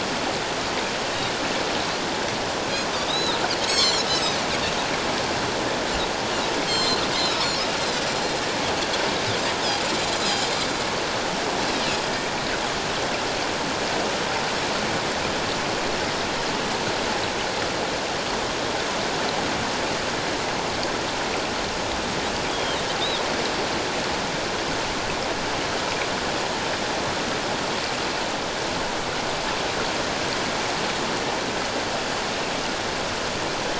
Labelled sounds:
3.1	4.4	Pacific white-sided dolphin, 2.9 to 7.9 kHz
6.7	7.5	Pacific white-sided dolphin, 3.0 to 7.6 kHz
10.1	10.5	Pacific white-sided dolphin, 7.2 to 7.4 kHz
22.5	22.8	Pacific white-sided dolphin, 2.9 to 3.5 kHz

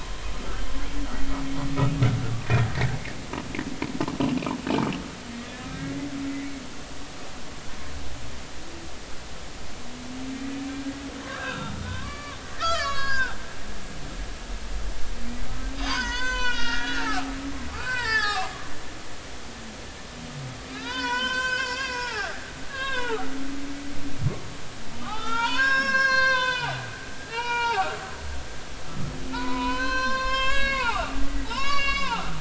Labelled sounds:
5.7	6.0	humpback whale, 1.5 to 1.7 kHz
10.4	13.4	humpback whale, 0.80 to 7.0 kHz
15.7	17.4	humpback whale, 0.80 to 7.7 kHz
17.7	18.7	humpback whale, 0.80 to 5.4 kHz
20.7	22.4	humpback whale, 0.80 to 7.1 kHz
22.7	23.3	humpback whale, 0.80 to 3.9 kHz
25.0	26.8	humpback whale, 0.80 to 7.6 kHz
27.3	27.9	humpback whale, 0.80 to 6.2 kHz
29.3	32.4	humpback whale, 0.80 to 7.4 kHz

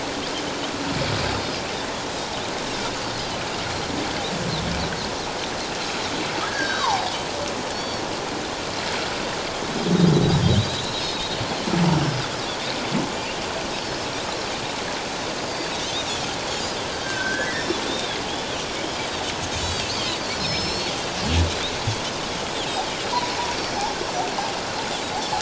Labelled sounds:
3.7	3.9	Pacific white-sided dolphin, 4.1 to 4.3 kHz
6.5	6.9	humpback whale, 1.4 to 4.8 kHz
6.6	8.0	Pacific white-sided dolphin, 0.78 to 5.7 kHz
10.7	10.9	Pacific white-sided dolphin, 3.5 to 4.0 kHz
11.9	12.2	Pacific white-sided dolphin, 4.9 to 5.6 kHz
15.5	15.7	Pacific white-sided dolphin, 4.5 to 4.8 kHz
17.0	17.7	humpback whale, 1.4 to 2.1 kHz
17.5	18.2	Pacific white-sided dolphin, 3.2 to 3.8 kHz
18.6	19.2	Pacific white-sided dolphin, 4.4 to 5.7 kHz
19.5	19.9	Pacific white-sided dolphin, 3.1 to 6.9 kHz
20.2	20.9	Pacific white-sided dolphin, 4.0 to 5.6 kHz
23.1	23.4	humpback whale, 0.91 to 1.1 kHz
23.6	23.9	Pacific white-sided dolphin, 4.3 to 5.6 kHz
25.1	25.3	Pacific white-sided dolphin, 4.2 to 4.7 kHz

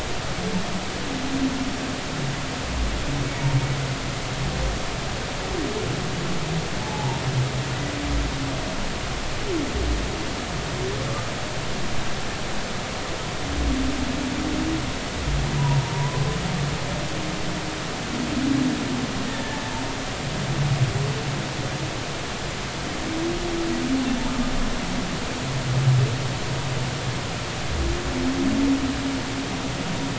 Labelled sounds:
6.8	7.2	humpback whale, 0.80 to 1.0 kHz
15.6	16.2	humpback whale, 0.83 to 1.1 kHz

